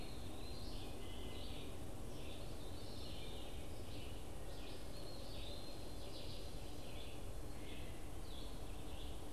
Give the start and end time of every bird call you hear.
0.0s-1.0s: Eastern Wood-Pewee (Contopus virens)
0.0s-9.3s: Red-eyed Vireo (Vireo olivaceus)
2.2s-3.8s: Veery (Catharus fuscescens)
4.8s-6.0s: Eastern Wood-Pewee (Contopus virens)

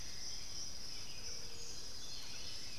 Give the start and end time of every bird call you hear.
0.0s-2.8s: Black-billed Thrush (Turdus ignobilis)
0.0s-2.8s: Buff-throated Saltator (Saltator maximus)
0.0s-2.8s: Thrush-like Wren (Campylorhynchus turdinus)

